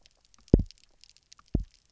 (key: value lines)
label: biophony, double pulse
recorder: SoundTrap 300